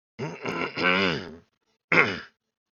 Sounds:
Throat clearing